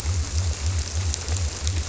{"label": "biophony", "recorder": "SoundTrap 300"}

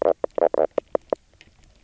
{"label": "biophony, knock croak", "recorder": "SoundTrap 300"}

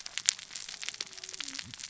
{"label": "biophony, cascading saw", "recorder": "SoundTrap 600 or HydroMoth"}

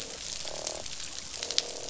{"label": "biophony, croak", "recorder": "SoundTrap 500"}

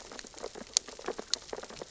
{"label": "biophony, sea urchins (Echinidae)", "recorder": "SoundTrap 600 or HydroMoth"}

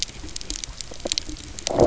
{"label": "biophony, low growl", "recorder": "SoundTrap 300"}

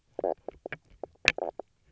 {"label": "biophony, knock croak", "recorder": "SoundTrap 300"}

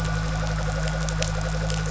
{"label": "anthrophony, boat engine", "recorder": "SoundTrap 500"}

